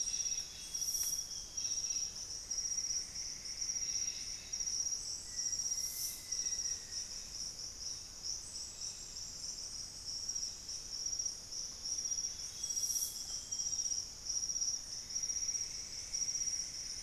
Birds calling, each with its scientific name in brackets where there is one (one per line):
Plumbeous Antbird (Myrmelastes hyperythrus)
Amazonian Grosbeak (Cyanoloxia rothschildii)
Golden-crowned Spadebill (Platyrinchus coronatus)
Black-faced Antthrush (Formicarius analis)